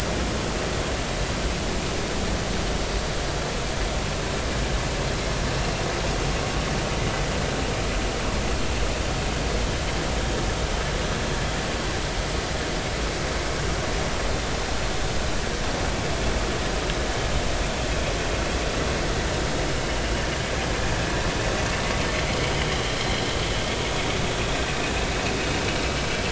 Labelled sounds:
22.9	23.1	vessel noise, 4.0 to 4.2 kHz

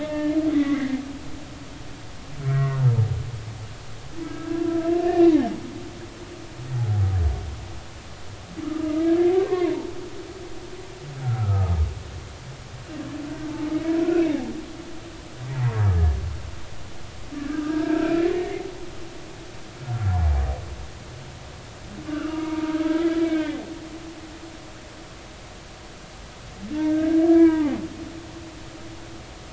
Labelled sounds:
0.0	1.0	humpback whale, 0.86 to 3.6 kHz
2.5	2.9	humpback whale, 0.93 to 2.0 kHz
4.2	5.3	humpback whale, 1.2 to 2.9 kHz
8.6	8.9	humpback whale, 1.2 to 1.3 kHz
9.4	9.8	humpback whale, 0.93 to 2.2 kHz
11.2	11.7	humpback whale, 1.2 to 1.5 kHz
13.7	14.0	humpback whale, 2.1 to 2.3 kHz
15.5	15.8	humpback whale, 0.83 to 2.1 kHz
17.3	18.6	humpback whale, 1.2 to 1.9 kHz
22.1	23.6	humpback whale, 0.90 to 2.9 kHz
26.7	27.8	humpback whale, 0.80 to 2.0 kHz

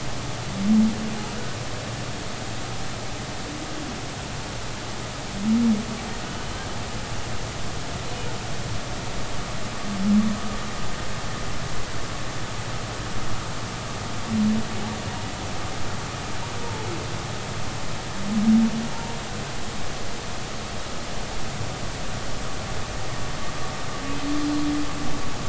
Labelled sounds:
6.2	6.7	humpback whale, 2.9 to 3.2 kHz
24.4	24.7	humpback whale, 4.1 to 4.2 kHz

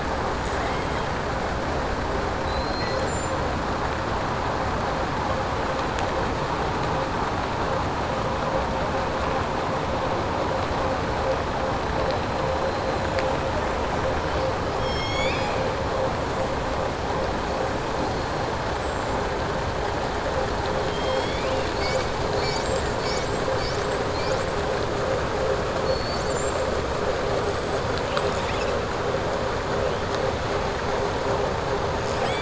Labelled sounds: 2.4	3.4	killer whale, southern resident, 3.9 to 7.7 kHz

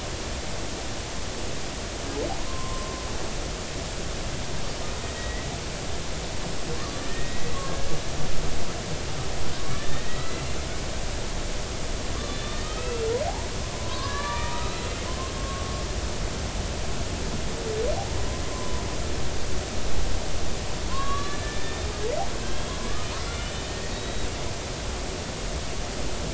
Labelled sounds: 2.5	3.1	killer whale, Bigg's (transient), 0.96 to 1.2 kHz
5.1	5.5	killer whale, Bigg's (transient), 1.8 to 2.1 kHz
6.8	7.9	killer whale, Bigg's (transient), 0.99 to 2.1 kHz
9.7	10.5	killer whale, Bigg's (transient), 1.7 to 4.2 kHz
12.3	15.0	killer whale, Bigg's (transient), 0.80 to 4.1 kHz
15.4	15.6	killer whale, Bigg's (transient), 1.1 to 1.2 kHz
18.5	18.9	killer whale, Bigg's (transient), 0.93 to 1.2 kHz
20.9	21.9	killer whale, Bigg's (transient), 0.96 to 4.1 kHz
22.4	22.8	killer whale, Bigg's (transient), 1.5 to 3.4 kHz
23.2	24.3	killer whale, Bigg's (transient), 2.0 to 3.9 kHz

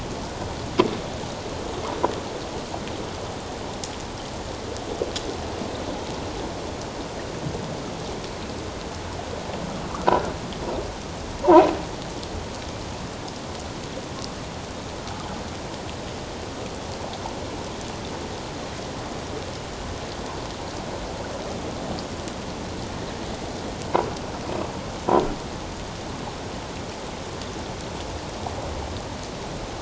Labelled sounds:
9.9	10.2	croaking sound likely from a nearby submerged object, 1.1 to 1.6 kHz
11.4	11.7	croaking sound likely from a nearby submerged object, 0.84 to 1.1 kHz

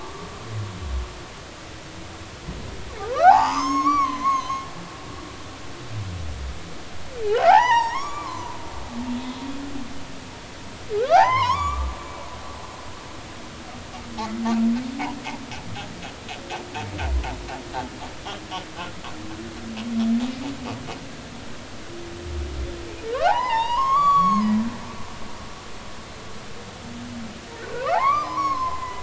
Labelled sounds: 3.0	4.7	humpback whale, 0.80 to 7.6 kHz
7.2	8.6	humpback whale, 0.80 to 7.1 kHz
11.0	11.9	humpback whale, 0.80 to 5.6 kHz
23.2	24.6	humpback whale, 0.80 to 6.9 kHz
27.6	29.0	humpback whale, 0.80 to 4.5 kHz

